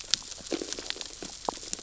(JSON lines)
{"label": "biophony, sea urchins (Echinidae)", "recorder": "SoundTrap 600 or HydroMoth"}